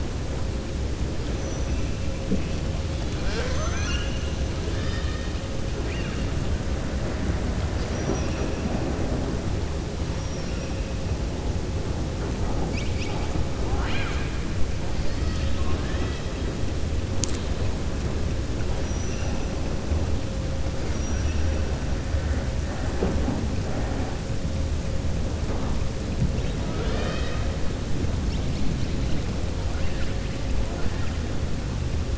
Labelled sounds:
2.9	4.2	killer whale, southern resident, 0.53 to 7.0 kHz
7.7	8.4	killer whale, southern resident, 3.9 to 6.7 kHz
13.6	14.3	killer whale, southern resident, 0.75 to 4.2 kHz
14.9	16.3	killer whale, southern resident, 0.99 to 5.2 kHz
18.7	19.4	killer whale, southern resident, 4.9 to 6.0 kHz
20.8	21.4	killer whale, southern resident, 5.2 to 5.9 kHz

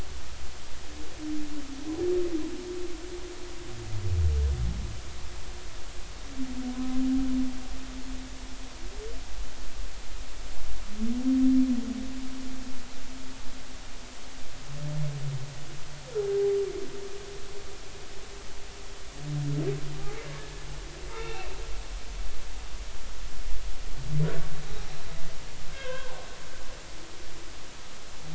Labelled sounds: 6.7	7.0	humpback whale, 0.96 to 1.1 kHz
21.1	21.6	humpback whale, 1.2 to 2.8 kHz
25.7	26.2	humpback whale, 0.80 to 3.3 kHz

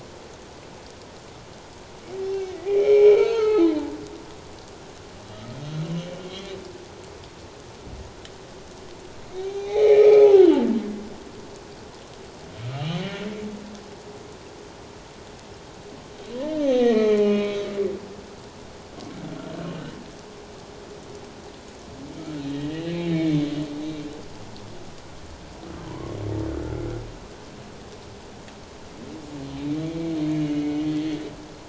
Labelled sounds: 2.3	3.8	humpback whale, 1.2 to 6.5 kHz
9.3	10.7	humpback whale, 0.78 to 4.1 kHz
12.7	13.0	humpback whale, 2.7 to 3.2 kHz
16.3	17.7	humpback whale, 0.84 to 4.3 kHz
22.4	23.4	humpback whale, 1.7 to 4.2 kHz
25.9	26.2	humpback whale, 0.91 to 1.1 kHz
26.5	26.8	humpback whale, 1.2 to 1.5 kHz
29.8	30.3	humpback whale, 2.1 to 4.2 kHz

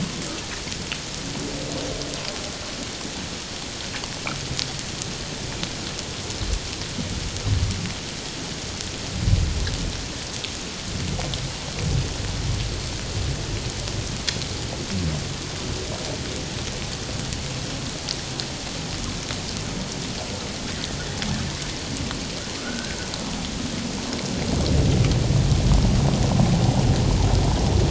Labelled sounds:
22.6	23.0	humpback whale, 1.2 to 1.7 kHz

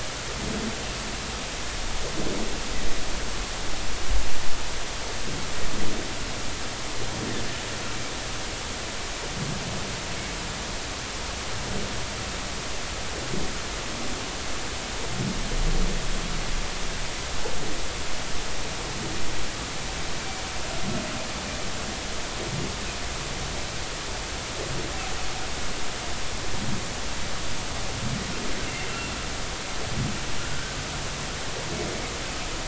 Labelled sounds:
28.7	28.9	humpback whale, 2.0 to 2.2 kHz
30.4	30.8	humpback whale, 1.3 to 1.6 kHz

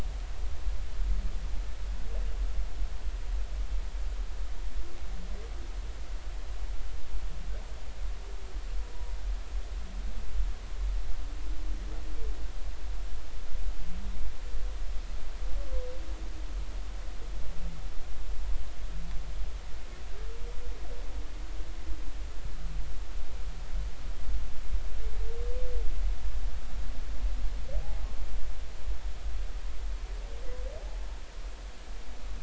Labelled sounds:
27.7	28.0	humpback whale, 0.80 to 0.90 kHz
30.8	31.1	humpback whale, 0.80 to 0.93 kHz

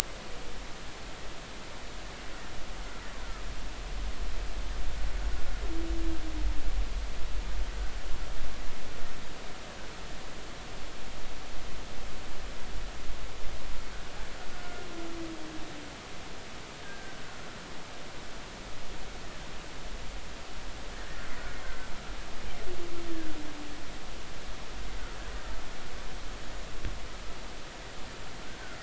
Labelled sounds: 3.2	3.5	killer whale, Bigg's (transient), 1.2 to 1.6 kHz
14.6	14.9	killer whale, Bigg's (transient), 1.4 to 1.5 kHz
16.8	17.2	killer whale, Bigg's (transient), 1.5 to 1.7 kHz
21.6	21.9	killer whale, Bigg's (transient), 1.5 to 1.6 kHz
23.1	23.4	killer whale, Bigg's (transient), 1.4 to 1.9 kHz

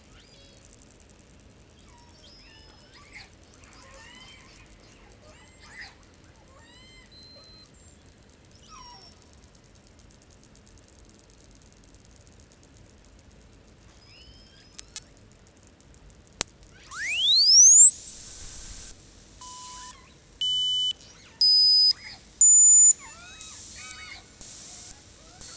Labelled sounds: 0.0	0.7	killer whale, southern resident, call S02iii, 0.55 to 8.0 kHz
1.8	3.0	killer whale, southern resident, call S36, 0.26 to 6.8 kHz
2.9	3.3	killer whale, southern resident, 0.26 to 8.0 kHz
3.5	6.1	killer whale, southern resident, call S10, 0.31 to 8.0 kHz
6.3	7.2	killer whale, southern resident, 0.26 to 8.0 kHz
7.1	8.0	killer whale, southern resident, J pod, call S42, 0.17 to 8.0 kHz
8.5	9.2	killer whale, southern resident, call S36, 0.21 to 7.3 kHz
13.9	15.3	killer whale, southern resident, call S19, 0.71 to 8.0 kHz
16.8	25.5	abiotic sound, 0.43 to 8.0 kHz
16.8	17.8	killer whale, 0.45 to 2.7 kHz
19.6	20.3	killer whale, 0.71 to 4.4 kHz
20.9	21.6	killer whale, 0.73 to 7.0 kHz
21.9	22.4	killer whale, 0.51 to 5.5 kHz
22.9	23.7	killer whale, southern resident, 0.38 to 6.7 kHz
23.7	25.5	killer whale, 0.40 to 6.6 kHz

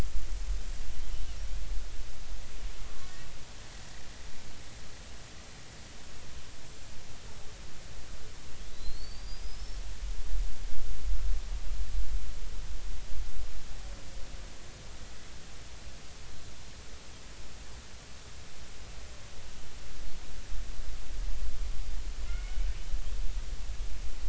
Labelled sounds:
8.7	9.8	killer whale, Bigg's (transient), 3.8 to 5.5 kHz
22.3	22.6	killer whale, Bigg's (transient), 2.0 to 2.2 kHz

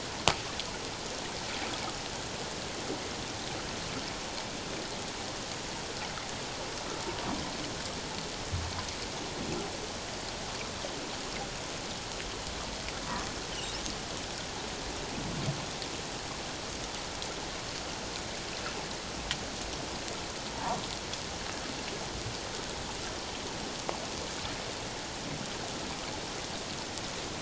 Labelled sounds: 13.5	13.8	humpback whale, 2.7 to 3.2 kHz
20.5	20.8	humpback whale, 0.84 to 1.2 kHz

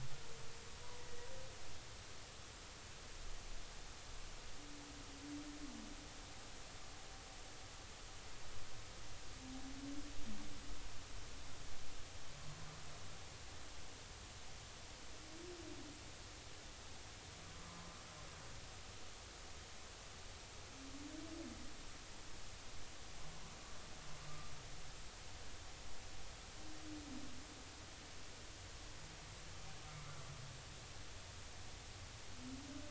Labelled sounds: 1.0	1.3	humpback whale, 1.9 to 2.0 kHz

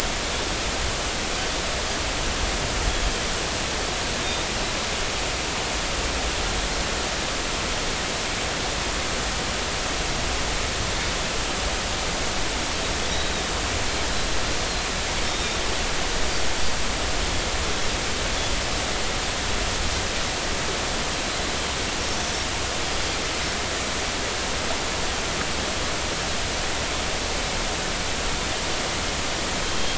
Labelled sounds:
15.2	15.6	Pacific white-sided dolphin, 3.6 to 3.7 kHz
29.6	29.9	Pacific white-sided dolphin, 3.1 to 3.3 kHz

